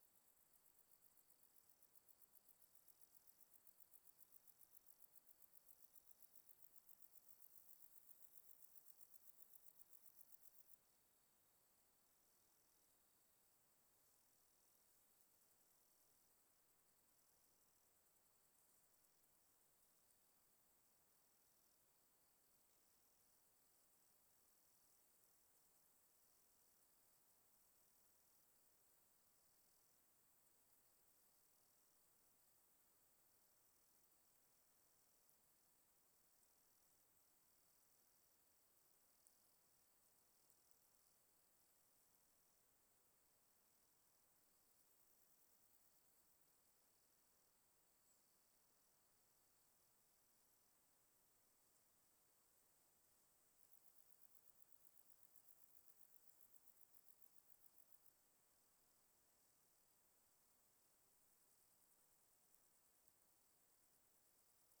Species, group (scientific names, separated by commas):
Chorthippus binotatus, Orthoptera